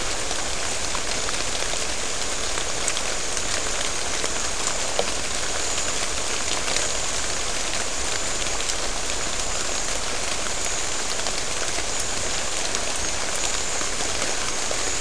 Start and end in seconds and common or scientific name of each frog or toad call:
none